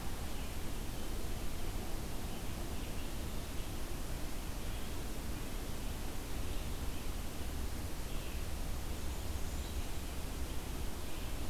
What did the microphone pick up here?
Red-eyed Vireo, Blackburnian Warbler